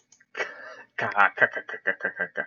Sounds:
Laughter